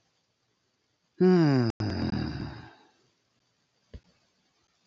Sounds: Sigh